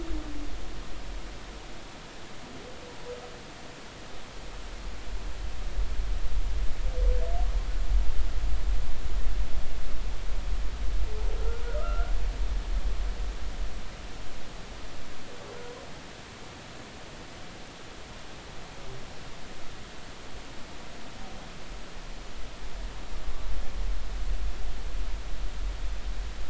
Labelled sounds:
11.7	12.1	humpback whale, 1.2 to 1.5 kHz

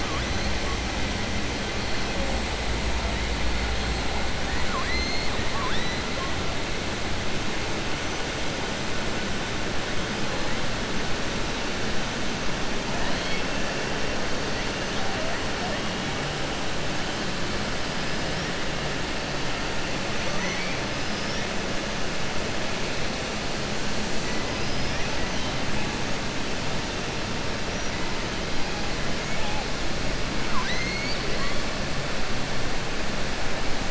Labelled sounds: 4.4	5.3	killer whale, southern resident, 0.93 to 4.4 kHz
13.0	13.5	killer whale, southern resident, 2.1 to 4.6 kHz
20.2	20.8	killer whale, southern resident, 0.60 to 3.2 kHz
24.5	25.1	killer whale, southern resident, 4.4 to 6.0 kHz
30.4	31.6	killer whale, southern resident, 1.0 to 6.3 kHz

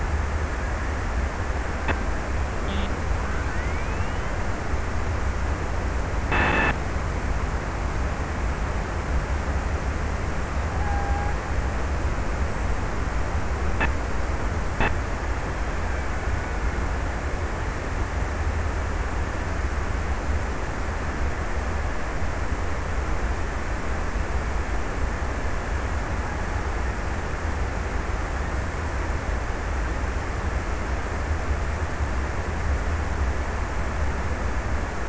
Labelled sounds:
10.4	11.6	killer whale, Bigg's (transient), 0.46 to 1.9 kHz
15.6	17.7	killer whale, Bigg's (transient), 1.1 to 2.7 kHz

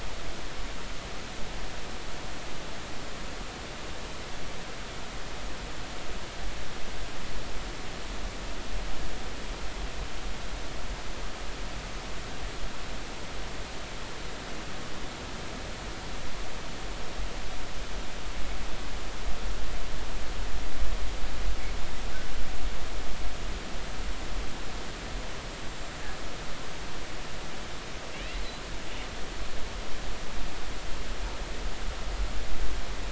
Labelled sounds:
25.7	26.0	killer whale, northern resident, 7.2 to 7.5 kHz
28.1	28.4	killer whale, northern resident, 2.1 to 2.8 kHz

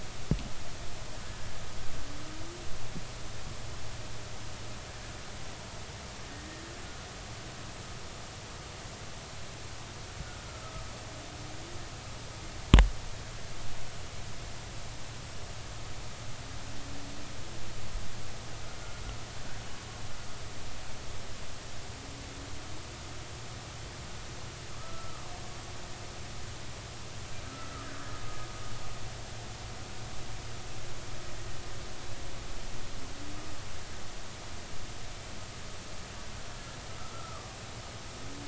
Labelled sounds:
24.7	25.2	killer whale, Bigg's (transient), 1.1 to 1.4 kHz
27.5	27.9	killer whale, Bigg's (transient), 1.2 to 1.4 kHz
37.1	37.5	killer whale, Bigg's (transient), 1.1 to 1.4 kHz

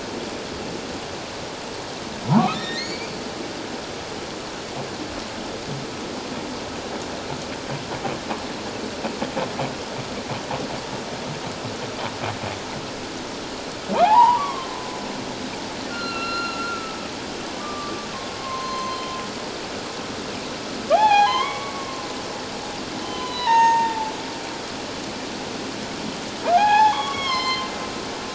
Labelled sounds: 2.5	3.1	humpback whale, 1.7 to 5.7 kHz
14.0	14.7	humpback whale, 0.78 to 2.0 kHz
15.9	18.1	humpback whale, 1.1 to 4.3 kHz
18.4	19.1	humpback whale, 0.97 to 6.3 kHz
20.9	22.0	humpback whale, 0.78 to 4.4 kHz
23.0	24.1	humpback whale, 0.81 to 6.5 kHz
26.5	27.7	humpback whale, 0.78 to 6.7 kHz

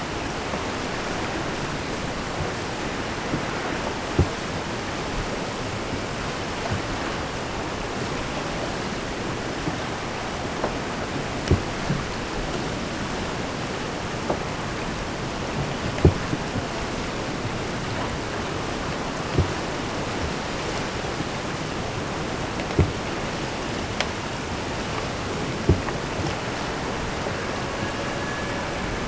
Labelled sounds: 27.3	29.0	killer whale, Bigg's (transient), AT1 transient, 0.27 to 3.0 kHz

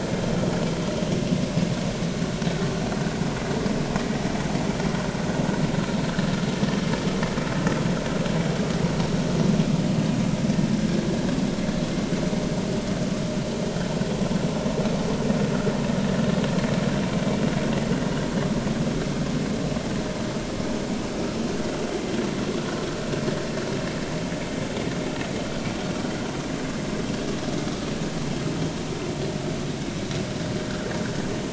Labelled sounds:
21.1	21.4	vessel noise, 1.3 to 1.4 kHz

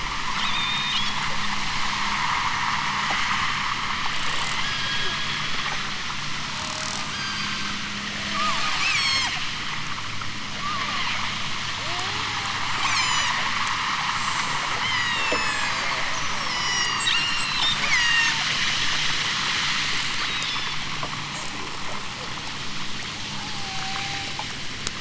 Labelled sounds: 0.3	1.2	killer whale, southern Alaska resident, 2.1 to 8.0 kHz
4.6	6.5	killer whale, southern Alaska resident, 1.1 to 5.5 kHz
7.1	7.8	killer whale, southern Alaska resident, 1.2 to 6.8 kHz
8.3	9.4	killer whale, southern Alaska resident, 0.87 to 8.0 kHz
10.6	11.1	killer whale, southern Alaska resident, 0.37 to 1.8 kHz
11.8	13.4	killer whale, southern Alaska resident, 0.46 to 8.0 kHz
14.8	15.9	killer whale, southern Alaska resident, 1.3 to 8.0 kHz
16.4	18.4	killer whale, southern Alaska resident, 0.60 to 8.0 kHz
20.1	20.8	killer whale, southern Alaska resident, 3.1 to 5.5 kHz
23.2	24.4	killer whale, southern Alaska resident, 0.41 to 1.4 kHz

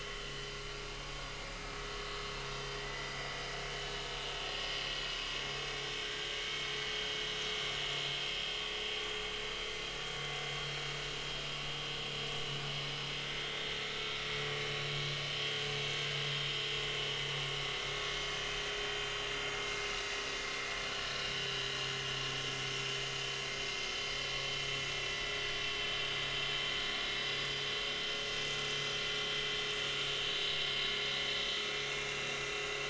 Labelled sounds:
0.0	0.5	vessel noise, 2.8 to 3.1 kHz
2.8	3.3	vessel noise, 1.8 to 4.9 kHz
6.0	6.3	vessel noise, 1.4 to 1.7 kHz
10.5	10.8	vessel noise, 4.1 to 4.4 kHz
13.3	14.2	vessel noise, 1.3 to 4.6 kHz
21.3	21.6	vessel noise, 2.9 to 3.3 kHz
30.4	30.7	vessel noise, 2.1 to 2.2 kHz
32.3	32.5	vessel noise, 5.5 to 5.7 kHz

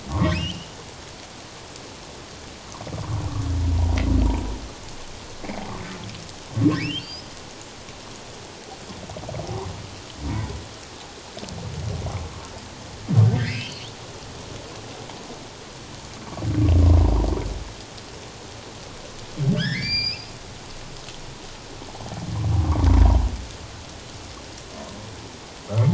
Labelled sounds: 0.1	0.7	humpback whale, 1.0 to 3.2 kHz
6.8	7.2	humpback whale, 2.2 to 5.3 kHz
13.4	13.9	humpback whale, 1.5 to 3.8 kHz
19.5	20.3	humpback whale, 1.4 to 7.3 kHz

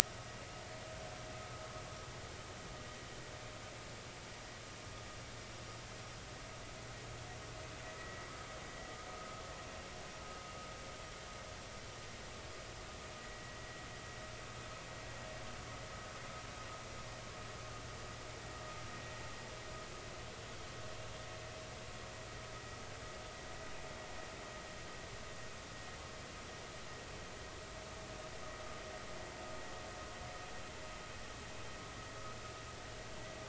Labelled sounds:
8.0	9.4	vessel noise, 1.2 to 2.0 kHz
13.2	13.5	vessel noise, 1.9 to 2.0 kHz

